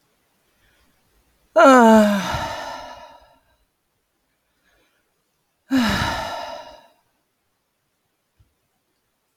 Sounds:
Sigh